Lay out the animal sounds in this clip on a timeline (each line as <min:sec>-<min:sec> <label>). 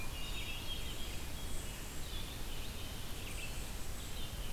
0:00.0-0:00.5 Yellow-bellied Sapsucker (Sphyrapicus varius)
0:00.0-0:01.4 Hermit Thrush (Catharus guttatus)
0:00.0-0:04.5 Red-eyed Vireo (Vireo olivaceus)